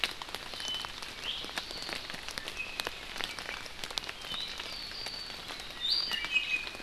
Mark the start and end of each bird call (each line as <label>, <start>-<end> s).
Apapane (Himatione sanguinea), 0.5-2.2 s
Apapane (Himatione sanguinea), 4.1-5.4 s
Iiwi (Drepanis coccinea), 5.8-6.8 s